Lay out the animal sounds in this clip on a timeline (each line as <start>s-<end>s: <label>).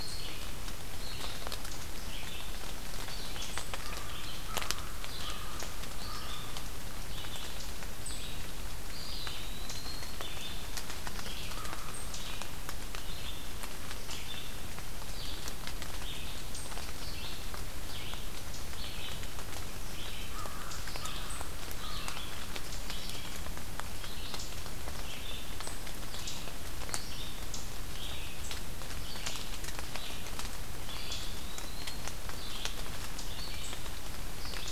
0.0s-12.5s: Red-eyed Vireo (Vireo olivaceus)
4.4s-6.5s: American Crow (Corvus brachyrhynchos)
8.8s-10.2s: Eastern Wood-Pewee (Contopus virens)
11.3s-11.9s: American Crow (Corvus brachyrhynchos)
12.8s-34.7s: Red-eyed Vireo (Vireo olivaceus)
20.1s-22.2s: American Crow (Corvus brachyrhynchos)
30.8s-32.1s: Eastern Wood-Pewee (Contopus virens)